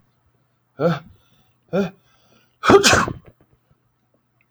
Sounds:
Sneeze